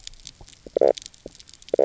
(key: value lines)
label: biophony, knock croak
recorder: SoundTrap 300